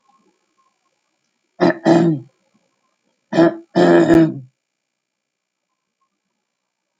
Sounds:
Throat clearing